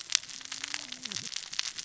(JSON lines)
{"label": "biophony, cascading saw", "recorder": "SoundTrap 600 or HydroMoth"}